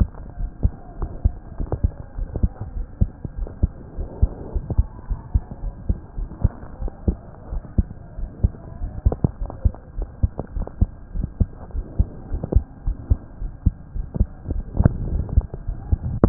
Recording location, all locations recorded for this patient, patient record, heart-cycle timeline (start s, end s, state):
aortic valve (AV)
aortic valve (AV)+pulmonary valve (PV)+tricuspid valve (TV)+mitral valve (MV)
#Age: Child
#Sex: Male
#Height: 118.0 cm
#Weight: 20.5 kg
#Pregnancy status: False
#Murmur: Absent
#Murmur locations: nan
#Most audible location: nan
#Systolic murmur timing: nan
#Systolic murmur shape: nan
#Systolic murmur grading: nan
#Systolic murmur pitch: nan
#Systolic murmur quality: nan
#Diastolic murmur timing: nan
#Diastolic murmur shape: nan
#Diastolic murmur grading: nan
#Diastolic murmur pitch: nan
#Diastolic murmur quality: nan
#Outcome: Normal
#Campaign: 2015 screening campaign
0.00	0.36	unannotated
0.36	0.50	S1
0.50	0.60	systole
0.60	0.72	S2
0.72	0.97	diastole
0.97	1.12	S1
1.12	1.20	systole
1.20	1.36	S2
1.36	1.55	diastole
1.55	1.70	S1
1.70	1.82	systole
1.82	1.94	S2
1.94	2.16	diastole
2.16	2.30	S1
2.30	2.40	systole
2.40	2.52	S2
2.52	2.74	diastole
2.74	2.86	S1
2.86	2.98	systole
2.98	3.12	S2
3.12	3.34	diastole
3.34	3.50	S1
3.50	3.58	systole
3.58	3.72	S2
3.72	3.95	diastole
3.95	4.08	S1
4.08	4.18	systole
4.18	4.34	S2
4.34	4.51	diastole
4.51	4.63	S1
4.63	4.74	systole
4.74	4.88	S2
4.88	5.06	diastole
5.06	5.20	S1
5.20	5.31	systole
5.31	5.44	S2
5.44	5.59	diastole
5.59	5.74	S1
5.74	5.86	systole
5.86	5.98	S2
5.98	6.14	diastole
6.14	6.30	S1
6.30	6.40	systole
6.40	6.54	S2
6.54	6.78	diastole
6.78	6.92	S1
6.92	7.04	systole
7.04	7.18	S2
7.18	7.48	diastole
7.48	7.62	S1
7.62	7.74	systole
7.74	7.88	S2
7.88	8.14	diastole
8.14	8.30	S1
8.30	8.40	systole
8.40	8.54	S2
8.54	8.78	diastole
8.78	8.92	S1
8.92	9.02	systole
9.02	9.18	S2
9.18	9.37	diastole
9.37	9.50	S1
9.50	9.62	systole
9.62	9.76	S2
9.76	9.94	diastole
9.94	10.08	S1
10.08	10.20	systole
10.20	10.34	S2
10.34	10.51	diastole
10.51	10.66	S1
10.66	10.78	systole
10.78	10.92	S2
10.92	11.11	diastole
11.11	11.25	S1
11.25	11.36	systole
11.36	11.50	S2
11.50	11.70	diastole
11.70	11.86	S1
11.86	11.96	systole
11.96	12.08	S2
12.08	12.28	diastole
12.28	12.42	S1
12.42	12.52	systole
12.52	12.66	S2
12.66	12.82	diastole
12.82	12.98	S1
12.98	13.08	systole
13.08	13.22	S2
13.22	13.38	diastole
13.38	13.52	S1
13.52	13.62	systole
13.62	13.76	S2
13.76	13.91	diastole
13.91	14.08	S1
14.08	14.16	systole
14.16	14.28	S2
14.28	14.48	diastole
14.48	14.65	S1
14.65	16.29	unannotated